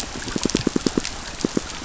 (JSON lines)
{"label": "biophony, pulse", "recorder": "SoundTrap 500"}